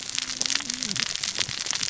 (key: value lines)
label: biophony, cascading saw
recorder: SoundTrap 600 or HydroMoth